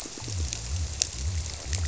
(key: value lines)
label: biophony, squirrelfish (Holocentrus)
recorder: SoundTrap 300

label: biophony
recorder: SoundTrap 300